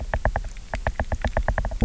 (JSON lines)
{"label": "biophony, knock", "recorder": "SoundTrap 300"}